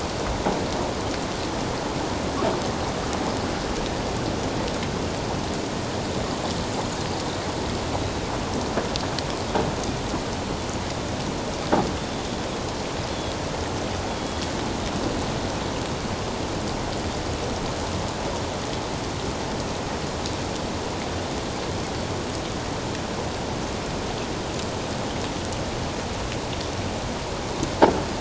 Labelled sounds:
14.1	14.4	croaking sound likely from a nearby submerged object, 3.3 to 3.5 kHz

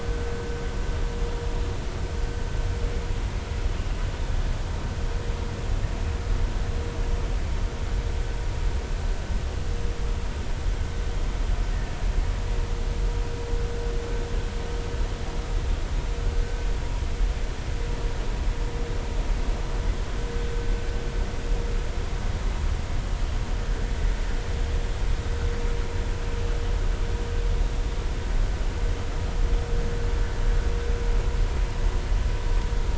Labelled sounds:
11.7	12.0	killer whale, Bigg's (transient), 1.7 to 2.0 kHz

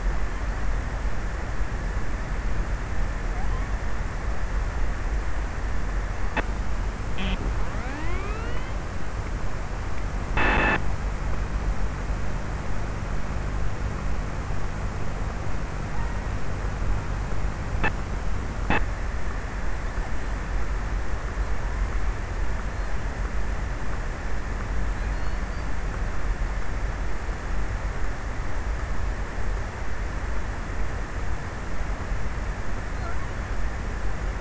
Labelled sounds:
24.5	26.2	killer whale, offshore, 3.3 to 5.2 kHz

